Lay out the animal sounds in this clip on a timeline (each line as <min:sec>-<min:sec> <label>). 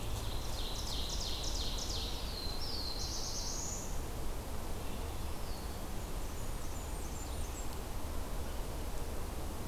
0:00.1-0:02.3 Ovenbird (Seiurus aurocapilla)
0:02.2-0:04.1 Black-throated Blue Warbler (Setophaga caerulescens)
0:04.9-0:05.7 Eastern Wood-Pewee (Contopus virens)
0:06.0-0:07.8 Blackburnian Warbler (Setophaga fusca)